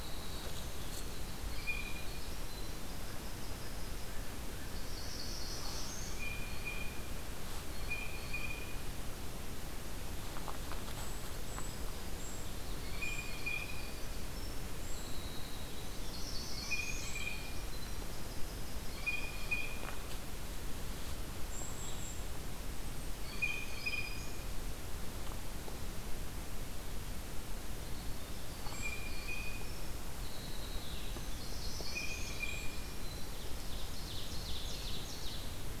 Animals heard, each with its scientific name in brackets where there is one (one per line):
Golden-crowned Kinglet (Regulus satrapa)
Winter Wren (Troglodytes hiemalis)
Blue Jay (Cyanocitta cristata)
Ovenbird (Seiurus aurocapilla)
Northern Parula (Setophaga americana)